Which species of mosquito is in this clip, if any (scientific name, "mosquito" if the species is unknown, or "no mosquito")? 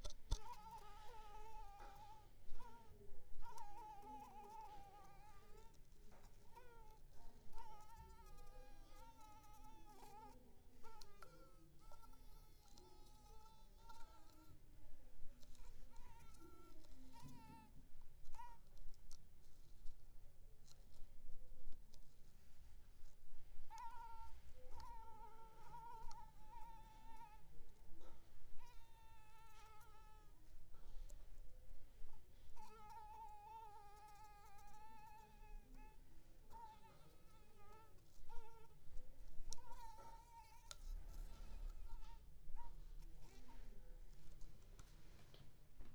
Anopheles coustani